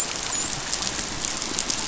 {"label": "biophony, dolphin", "recorder": "SoundTrap 500"}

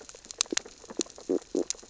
{"label": "biophony, stridulation", "recorder": "SoundTrap 600 or HydroMoth"}
{"label": "biophony, sea urchins (Echinidae)", "recorder": "SoundTrap 600 or HydroMoth"}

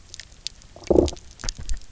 {"label": "biophony, low growl", "recorder": "SoundTrap 300"}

